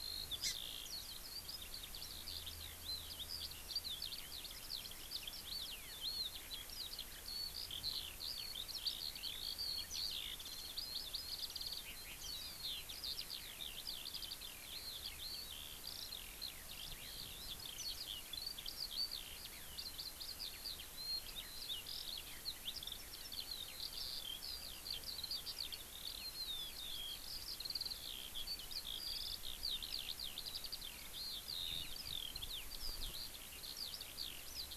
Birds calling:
Hawaii Amakihi (Chlorodrepanis virens), Eurasian Skylark (Alauda arvensis)

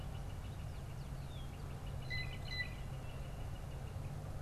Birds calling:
Northern Flicker (Colaptes auratus), Blue Jay (Cyanocitta cristata)

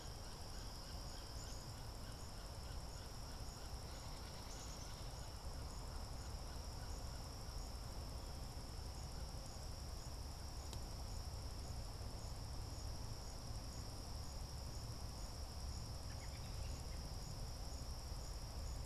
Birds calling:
American Robin (Turdus migratorius), unidentified bird, Black-capped Chickadee (Poecile atricapillus)

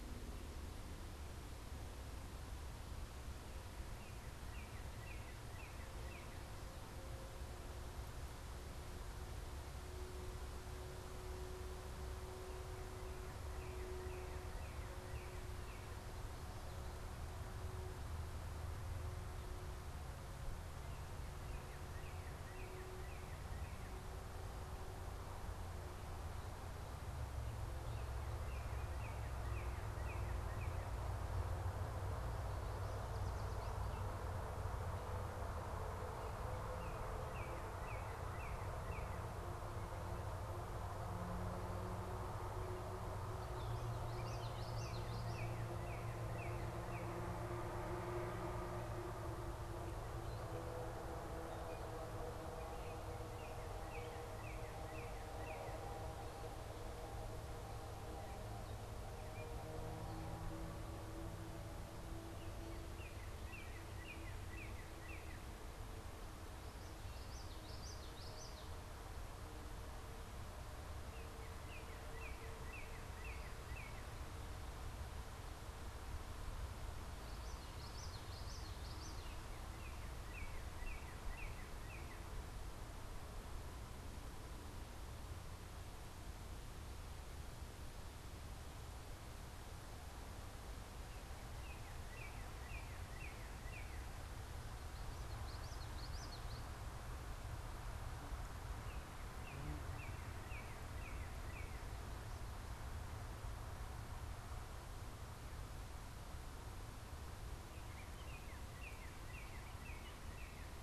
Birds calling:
Northern Cardinal (Cardinalis cardinalis), Gray Catbird (Dumetella carolinensis), Common Yellowthroat (Geothlypis trichas)

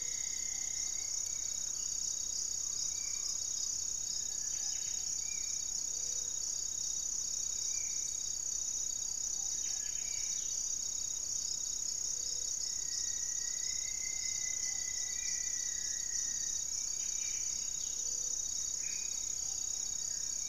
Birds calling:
Spot-winged Antshrike (Pygiptila stellaris), Striped Woodcreeper (Xiphorhynchus obsoletus), Black-faced Antthrush (Formicarius analis), Cinereous Tinamou (Crypturellus cinereus), Ringed Woodpecker (Celeus torquatus), Gray-fronted Dove (Leptotila rufaxilla), unidentified bird, Buff-breasted Wren (Cantorchilus leucotis), Ruddy Pigeon (Patagioenas subvinacea), Olivaceous Woodcreeper (Sittasomus griseicapillus), Rufous-fronted Antthrush (Formicarius rufifrons)

